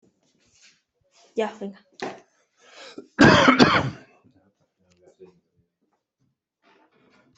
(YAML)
expert_labels:
- quality: ok
  cough_type: wet
  dyspnea: false
  wheezing: false
  stridor: false
  choking: false
  congestion: false
  nothing: true
  diagnosis: lower respiratory tract infection
  severity: mild